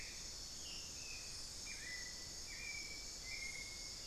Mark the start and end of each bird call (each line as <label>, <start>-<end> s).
Hauxwell's Thrush (Turdus hauxwelli), 0.0-4.1 s
unidentified bird, 0.0-4.1 s
Ringed Antpipit (Corythopis torquatus), 0.5-1.4 s